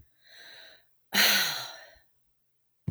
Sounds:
Sigh